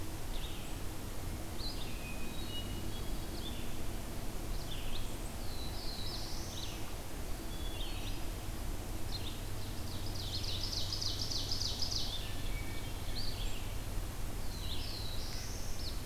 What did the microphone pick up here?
Red-eyed Vireo, Hermit Thrush, Black-throated Blue Warbler, Ovenbird